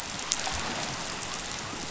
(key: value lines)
label: biophony
recorder: SoundTrap 500